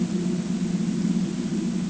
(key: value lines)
label: ambient
recorder: HydroMoth